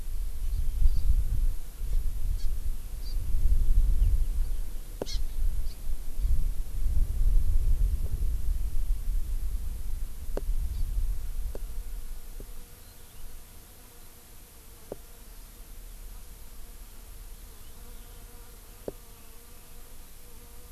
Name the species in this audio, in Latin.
Chlorodrepanis virens